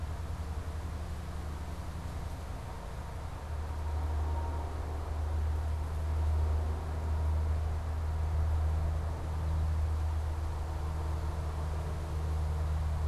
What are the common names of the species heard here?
American Goldfinch